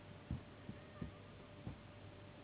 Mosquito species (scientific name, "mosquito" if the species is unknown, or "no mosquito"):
Anopheles gambiae s.s.